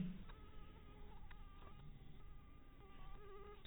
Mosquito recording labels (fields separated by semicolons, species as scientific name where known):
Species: mosquito; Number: one; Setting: cup